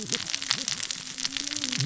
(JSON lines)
{"label": "biophony, cascading saw", "recorder": "SoundTrap 600 or HydroMoth"}